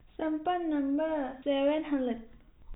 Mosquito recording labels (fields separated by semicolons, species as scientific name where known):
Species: no mosquito; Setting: cup